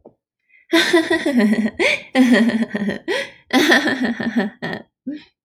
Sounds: Laughter